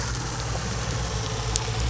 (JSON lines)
{"label": "biophony", "recorder": "SoundTrap 300"}